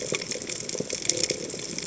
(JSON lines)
{"label": "biophony", "recorder": "HydroMoth"}